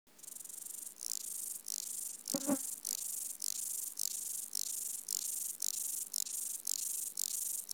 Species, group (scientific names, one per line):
Stauroderus scalaris
Orthoptera